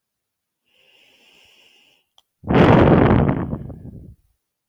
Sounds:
Sigh